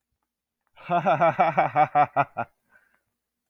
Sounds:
Laughter